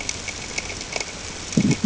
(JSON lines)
{"label": "ambient", "recorder": "HydroMoth"}